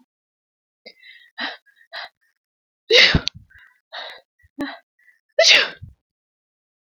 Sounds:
Sneeze